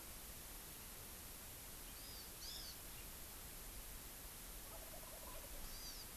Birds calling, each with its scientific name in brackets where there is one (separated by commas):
Hawaii Amakihi (Chlorodrepanis virens), Wild Turkey (Meleagris gallopavo)